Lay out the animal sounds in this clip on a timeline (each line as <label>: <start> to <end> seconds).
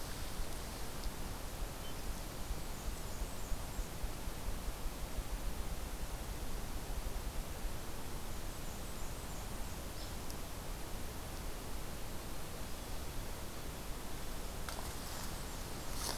Blackburnian Warbler (Setophaga fusca): 2.2 to 4.0 seconds
Blackburnian Warbler (Setophaga fusca): 8.4 to 9.7 seconds
Hairy Woodpecker (Dryobates villosus): 9.9 to 10.2 seconds
Blackburnian Warbler (Setophaga fusca): 14.6 to 16.1 seconds